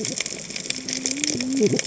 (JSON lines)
{"label": "biophony, cascading saw", "recorder": "HydroMoth"}